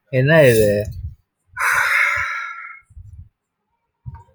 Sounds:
Sigh